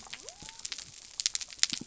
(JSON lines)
{"label": "biophony", "recorder": "SoundTrap 300"}